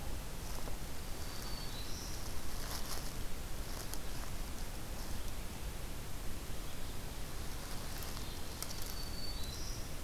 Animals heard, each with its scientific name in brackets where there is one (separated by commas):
Black-throated Green Warbler (Setophaga virens)